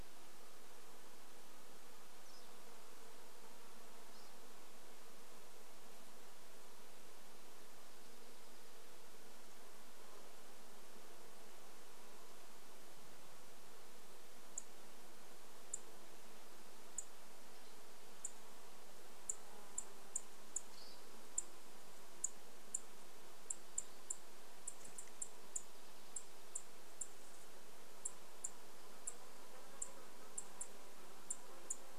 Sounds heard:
insect buzz, unidentified sound, Dark-eyed Junco song, Dark-eyed Junco call, Pine Siskin call

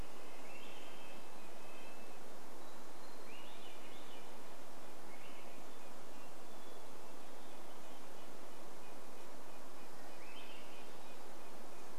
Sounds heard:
Dark-eyed Junco song, Hermit Thrush song, Swainson's Thrush song, Red-breasted Nuthatch song

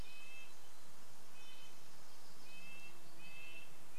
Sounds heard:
insect buzz, Red-breasted Nuthatch song, Pacific Wren song

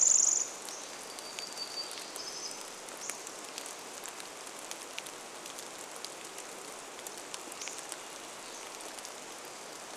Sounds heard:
rain, Hermit Warbler song, Pacific Wren song, Hammond's Flycatcher song

